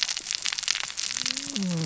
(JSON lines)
{"label": "biophony, cascading saw", "recorder": "SoundTrap 600 or HydroMoth"}